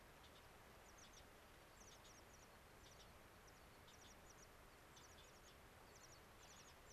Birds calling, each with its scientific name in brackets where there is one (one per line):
American Pipit (Anthus rubescens)
unidentified bird